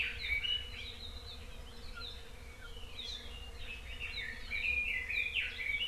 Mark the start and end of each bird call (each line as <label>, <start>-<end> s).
Red-billed Leiothrix (Leiothrix lutea), 0.0-1.0 s
Red-billed Leiothrix (Leiothrix lutea), 3.3-5.9 s